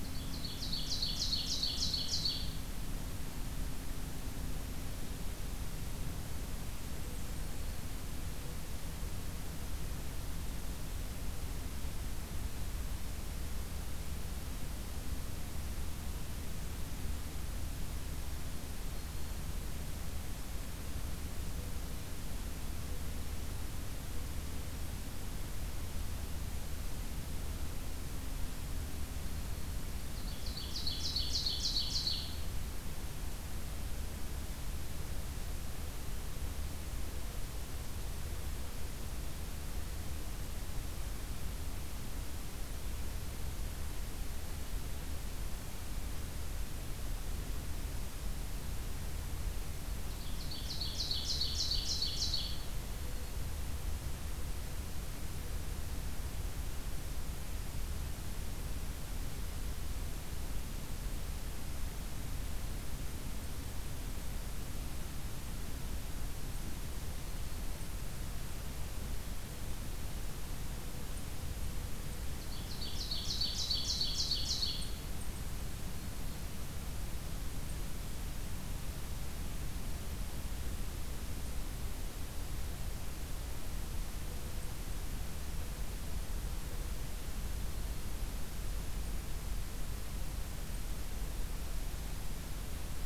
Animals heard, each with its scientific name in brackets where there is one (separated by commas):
Ovenbird (Seiurus aurocapilla), Blackburnian Warbler (Setophaga fusca), Black-throated Green Warbler (Setophaga virens)